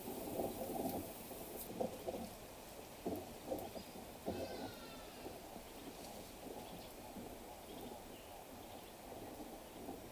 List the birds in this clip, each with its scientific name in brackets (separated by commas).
Hadada Ibis (Bostrychia hagedash)